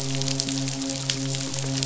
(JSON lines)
{"label": "biophony, midshipman", "recorder": "SoundTrap 500"}